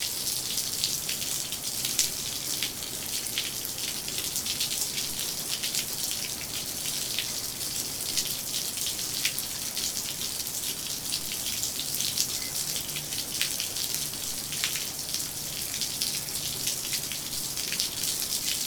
Is the rain falling steadily?
yes